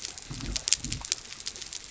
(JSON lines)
{"label": "biophony", "recorder": "SoundTrap 300"}